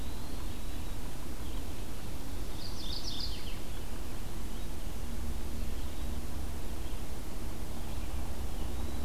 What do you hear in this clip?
Eastern Wood-Pewee, Red-eyed Vireo, Mourning Warbler